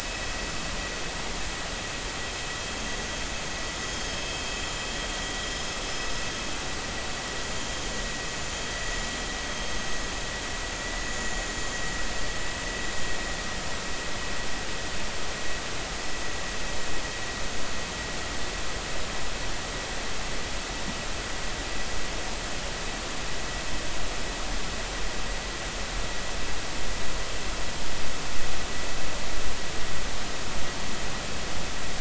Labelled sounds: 11.0	11.5	vessel noise, 6.9 to 7.2 kHz

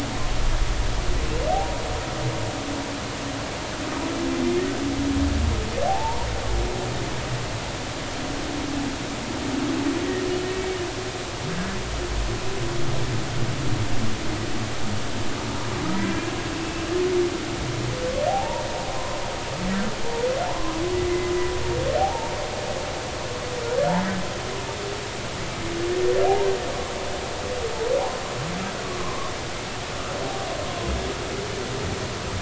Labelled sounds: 5.9	6.3	humpback whale, 0.80 to 0.99 kHz
18.3	18.6	humpback whale, 0.80 to 1.0 kHz
20.5	21.3	humpback whale, 0.83 to 2.1 kHz
22.0	22.3	humpback whale, 0.80 to 0.99 kHz
28.8	29.3	humpback whale, 0.96 to 1.2 kHz

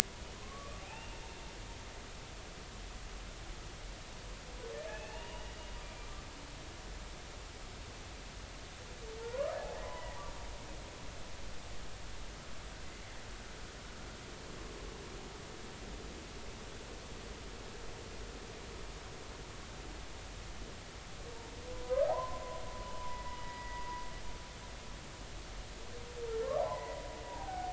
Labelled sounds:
0.4	1.2	humpback whale, 0.80 to 2.9 kHz
4.9	5.5	humpback whale, 0.80 to 2.9 kHz
9.2	9.6	humpback whale, 0.86 to 1.3 kHz
9.8	10.1	humpback whale, 0.93 to 1.1 kHz
21.7	22.4	humpback whale, 0.80 to 1.3 kHz
22.9	23.8	humpback whale, 0.86 to 2.1 kHz
26.6	27.7	humpback whale, 0.80 to 2.1 kHz

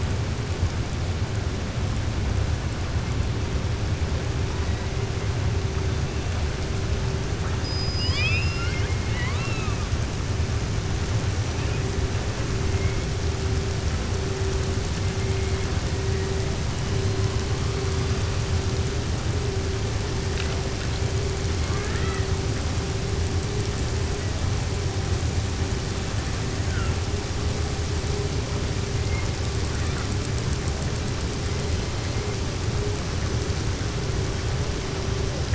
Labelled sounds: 7.5	9.8	killer whale, southern resident, 1.0 to 7.0 kHz
21.6	22.3	killer whale, southern resident, 0.84 to 4.0 kHz

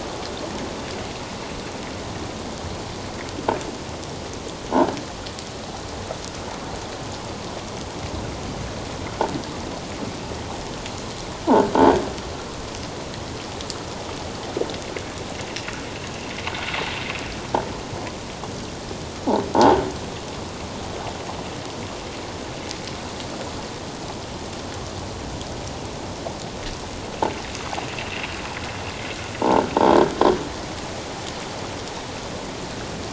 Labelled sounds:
16.5	16.8	sound from a nearby beach, 1.4 to 1.6 kHz
19.5	19.8	croaking sound likely from a nearby submerged object, 0.78 to 1.1 kHz

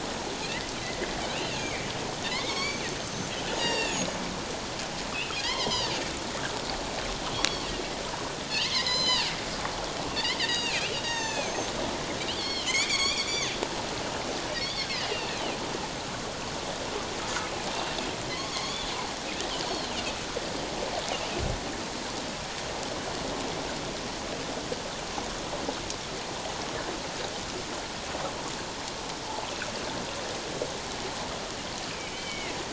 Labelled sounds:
0.8	1.1	Pacific white-sided dolphin, 1.8 to 2.1 kHz
1.3	1.9	Pacific white-sided dolphin, 1.9 to 2.9 kHz
2.3	2.9	Pacific white-sided dolphin, 1.0 to 6.5 kHz
3.6	4.2	Pacific white-sided dolphin, 0.88 to 7.6 kHz
5.3	5.9	Pacific white-sided dolphin, 0.91 to 5.5 kHz
7.3	7.6	Pacific white-sided dolphin, 5.4 to 5.7 kHz
8.5	9.3	Pacific white-sided dolphin, 1.7 to 8.0 kHz
10.5	11.7	Pacific white-sided dolphin, 0.78 to 7.6 kHz
12.3	13.6	Pacific white-sided dolphin, 1.0 to 7.1 kHz
14.8	15.5	Pacific white-sided dolphin, 2.4 to 5.6 kHz
18.3	18.9	Pacific white-sided dolphin, 0.97 to 3.6 kHz
19.7	19.9	Pacific white-sided dolphin, 4.0 to 4.4 kHz
31.9	32.6	Pacific white-sided dolphin, 1.9 to 3.2 kHz

